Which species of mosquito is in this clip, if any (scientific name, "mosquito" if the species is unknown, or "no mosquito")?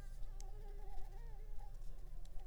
Anopheles arabiensis